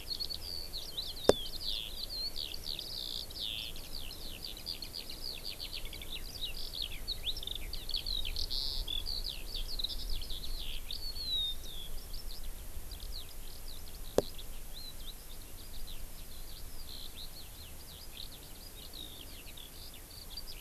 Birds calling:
Eurasian Skylark (Alauda arvensis)

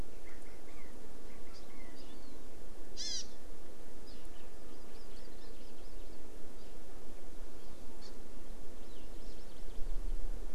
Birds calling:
Warbling White-eye (Zosterops japonicus), Chinese Hwamei (Garrulax canorus), Hawaii Amakihi (Chlorodrepanis virens)

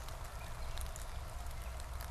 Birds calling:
Gray Catbird (Dumetella carolinensis)

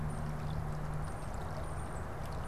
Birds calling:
Tufted Titmouse (Baeolophus bicolor)

